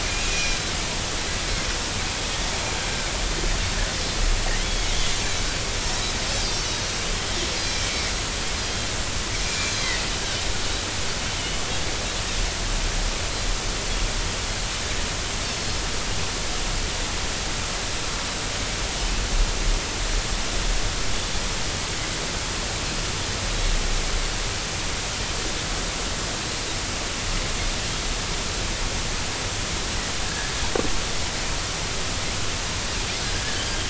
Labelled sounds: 0.0	0.6	Pacific white-sided dolphin, 2.2 to 5.8 kHz
4.6	4.9	Pacific white-sided dolphin, 3.2 to 3.5 kHz
6.3	6.8	Pacific white-sided dolphin, 4.4 to 5.9 kHz
7.6	8.1	Pacific white-sided dolphin, 1.8 to 4.2 kHz
8.5	8.9	Pacific white-sided dolphin, 3.1 to 5.2 kHz
9.4	9.9	Pacific white-sided dolphin, 2.3 to 6.6 kHz
30.3	30.5	Pacific white-sided dolphin, 1.5 to 1.8 kHz

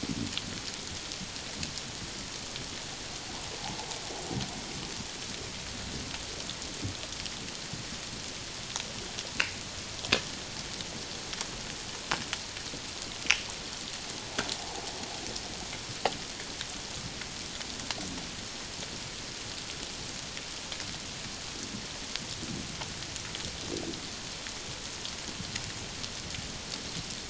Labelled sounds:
14.6	14.8	water noise, 0.78 to 1.0 kHz

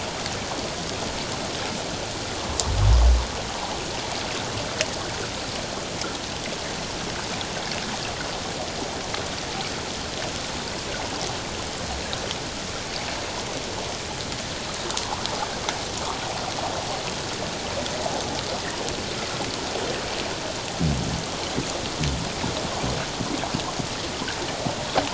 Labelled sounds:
14.9	15.3	water noise, 0.78 to 1.3 kHz

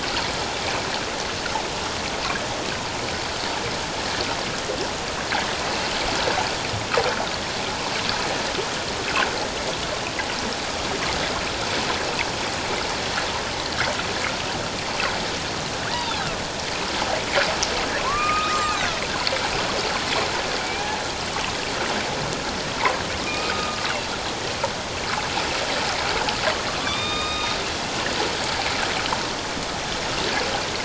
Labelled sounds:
15.9	16.2	killer whale, northern resident, A clan, AB subclan, 3.2 to 3.9 kHz
18.0	19.0	killer whale, northern resident, A clan, AB subclan, 0.91 to 2.7 kHz
20.6	21.0	killer whale, northern resident, A clan, AB subclan, 0.78 to 2.5 kHz
23.2	23.8	killer whale, northern resident, A clan, AB subclan, 1.0 to 2.6 kHz
26.8	27.6	killer whale, northern resident, A clan, AB subclan, 1.0 to 5.0 kHz

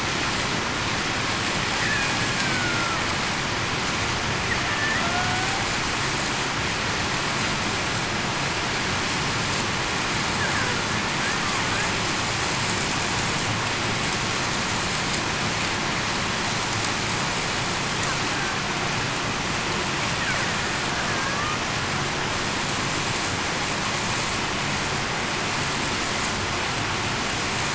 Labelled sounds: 2.4	3.0	killer whale, Bigg's (transient), 1.2 to 1.6 kHz
5.1	5.5	killer whale, Bigg's (transient), 0.70 to 0.77 kHz

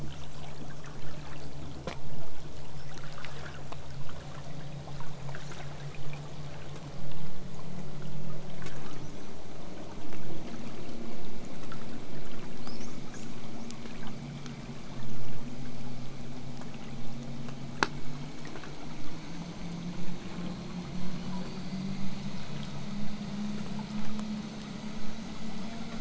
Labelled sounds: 2.7	3.0	killer whale, southern resident, whistle, 4.9 to 8.0 kHz
5.4	5.8	killer whale, southern resident, 3.6 to 8.0 kHz
12.6	13.7	killer whale, southern resident, L pod, call S18, 4.1 to 8.0 kHz
14.3	16.1	killer whale, southern resident, L pod, call S18, 7.9 to 8.0 kHz

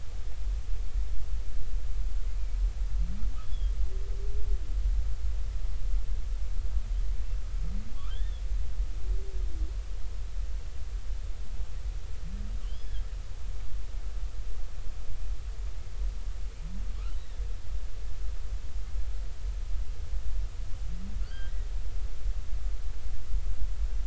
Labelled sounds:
3.4	3.7	humpback whale, 3.1 to 3.5 kHz
8.1	8.4	humpback whale, 3.0 to 3.7 kHz
12.6	13.1	humpback whale, 2.8 to 3.5 kHz
21.2	21.5	humpback whale, 1.3 to 4.9 kHz

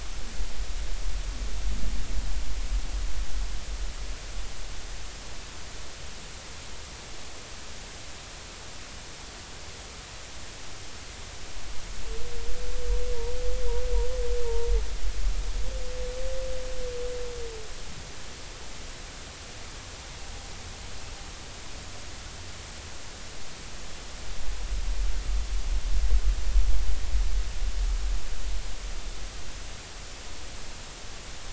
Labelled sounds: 14.4	14.7	humpback whale, 0.86 to 0.99 kHz

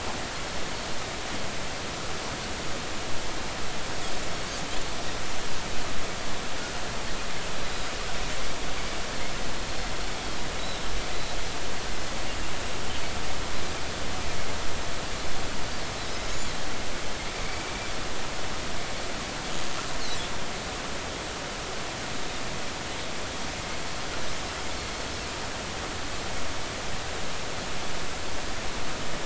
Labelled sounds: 17.4	17.7	Pacific white-sided dolphin, 2.2 to 2.4 kHz

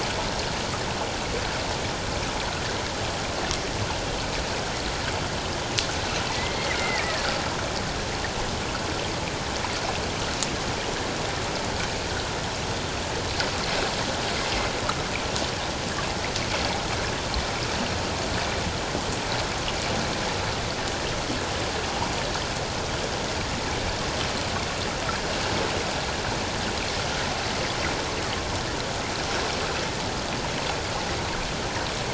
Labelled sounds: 6.3	7.3	killer whale, 1.7 to 2.3 kHz

